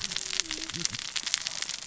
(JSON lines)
{"label": "biophony, cascading saw", "recorder": "SoundTrap 600 or HydroMoth"}